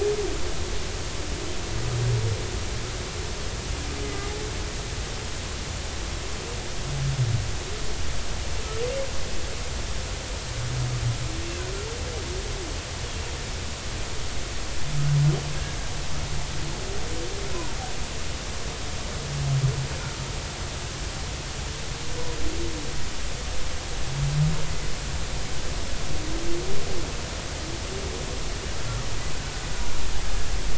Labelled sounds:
4.1	4.3	humpback whale, 2.0 to 2.1 kHz

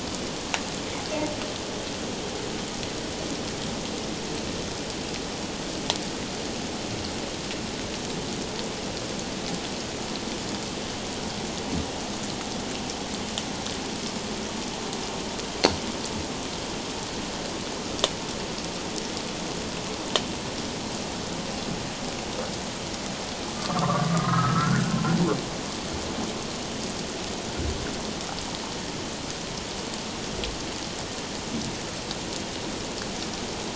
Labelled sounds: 23.6	25.0	humpback whale, 1.0 to 1.7 kHz

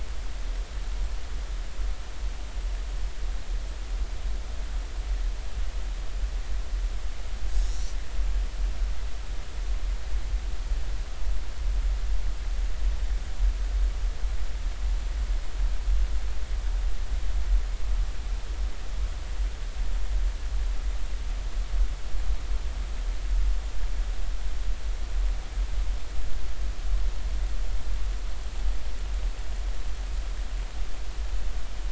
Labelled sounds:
7.5	8.0	small unidentified odontocete, 5.2 to 6.0 kHz

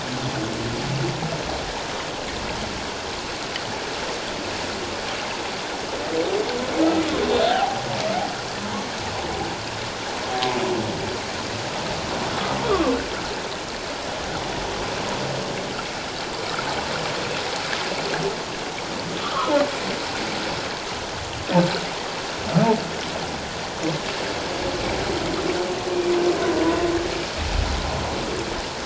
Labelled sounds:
7.5	7.9	humpback whale, 0.78 to 0.97 kHz
12.3	12.9	humpback whale, 1.0 to 1.4 kHz
19.2	19.5	humpback whale, 0.97 to 1.4 kHz

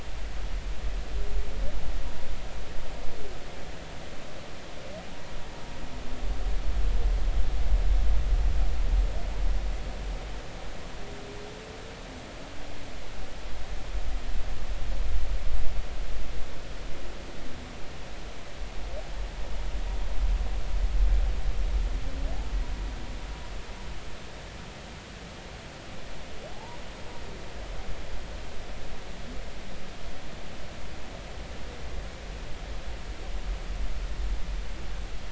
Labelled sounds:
26.5	26.8	humpback whale, 0.80 to 1.0 kHz

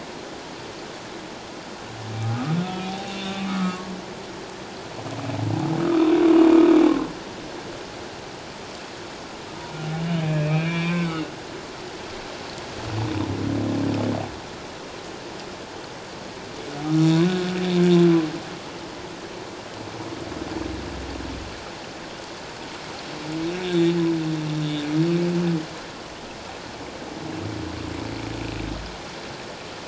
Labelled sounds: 2.6	3.9	humpback whale, 0.78 to 3.8 kHz
10.0	11.1	humpback whale, 0.97 to 3.1 kHz
23.5	23.9	humpback whale, 3.4 to 3.8 kHz

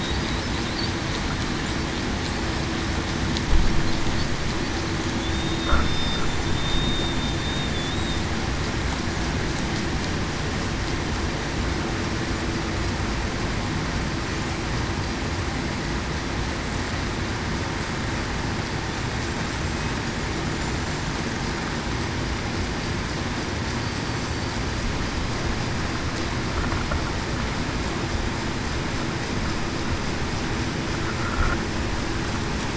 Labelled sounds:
5.3	6.2	killer whale, Bigg's (transient), 3.6 to 3.7 kHz
6.5	7.2	killer whale, Bigg's (transient), 3.6 to 3.7 kHz
20.5	21.1	killer whale, Bigg's (transient), 7.1 to 7.4 kHz

